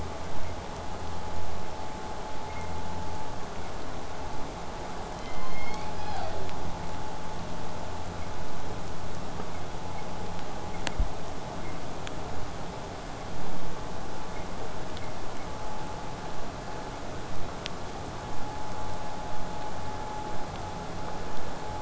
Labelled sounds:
5.2	6.4	killer whale, southern resident, J pod, call S01, 0.33 to 7.1 kHz
15.3	20.3	vessel noise, 0 to 8.0 kHz

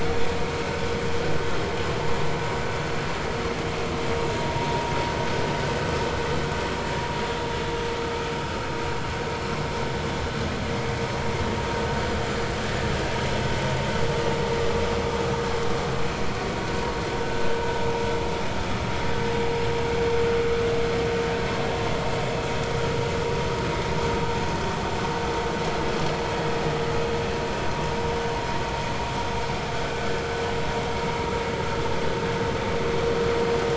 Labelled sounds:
4.6	4.8	vessel noise, 0.86 to 0.99 kHz

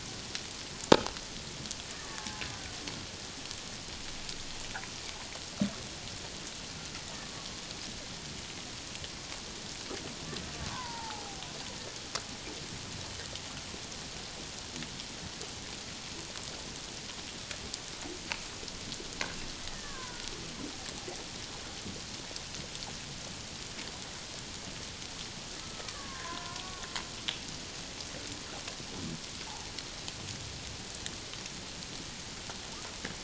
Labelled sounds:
2.1	2.4	killer whale, Bigg's (transient), 0.81 to 1.1 kHz
10.7	11.5	killer whale, Bigg's (transient), 0.78 to 1.6 kHz
19.6	20.3	killer whale, Bigg's (transient), 0.91 to 2.0 kHz
25.6	26.6	killer whale, Bigg's (transient), 0.94 to 1.8 kHz

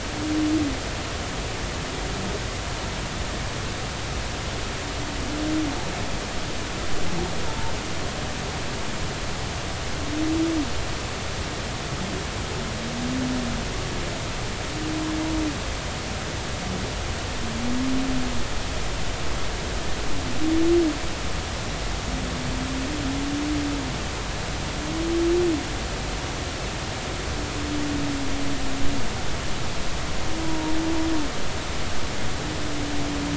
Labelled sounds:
7.4	7.7	humpback whale, 0.86 to 0.96 kHz
30.5	30.7	humpback whale, 0.90 to 1.0 kHz

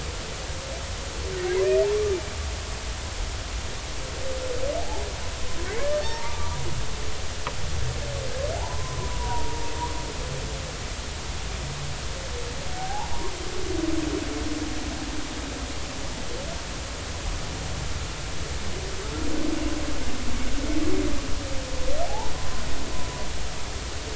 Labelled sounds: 6.0	6.7	humpback whale, 0.86 to 2.4 kHz
8.6	9.7	humpback whale, 0.80 to 1.1 kHz
12.7	13.1	humpback whale, 0.80 to 1.0 kHz
22.1	22.6	humpback whale, 0.80 to 1.1 kHz

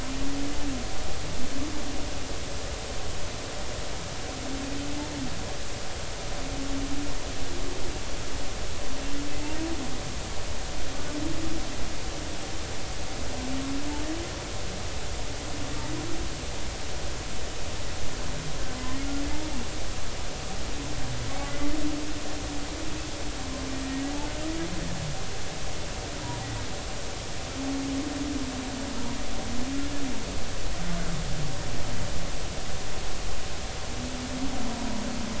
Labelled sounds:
23.8	24.1	humpback whale, 1.8 to 2.0 kHz

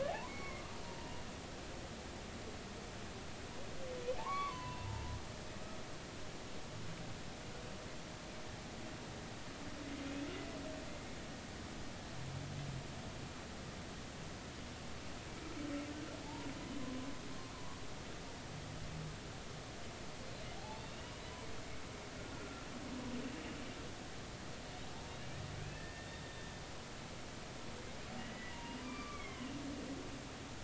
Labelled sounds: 0.0	0.6	humpback whale, 0.80 to 2.3 kHz
4.2	5.2	humpback whale, 0.80 to 4.5 kHz
16.2	16.5	humpback whale, 0.80 to 1.1 kHz
20.6	21.1	humpback whale, 0.80 to 4.6 kHz
22.4	22.6	humpback whale, 1.3 to 1.4 kHz
25.5	26.5	humpback whale, 1.7 to 3.6 kHz
28.2	29.6	humpback whale, 0.90 to 3.4 kHz

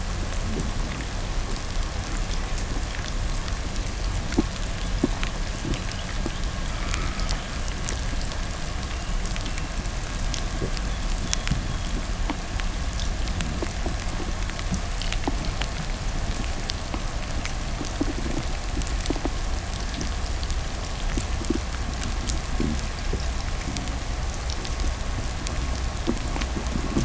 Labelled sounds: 4.7	9.8	killer whale, 0.69 to 3.3 kHz
10.4	12.2	killer whale, 3.1 to 3.8 kHz

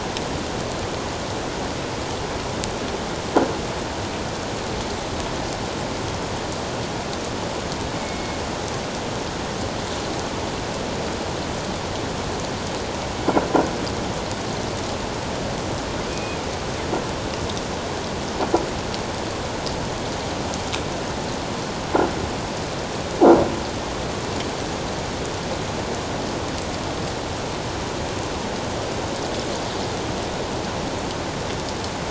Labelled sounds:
8.0	8.4	killer whale, northern resident, G clan, call N24i, 2.1 to 2.2 kHz
16.1	16.4	killer whale, northern resident, G clan, call N24i, 2.4 to 2.7 kHz

